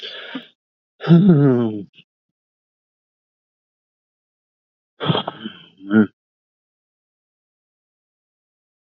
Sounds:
Sigh